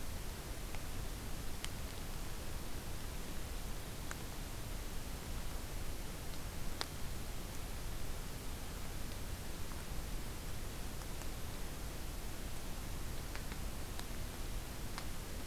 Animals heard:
forest ambience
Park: Acadia National Park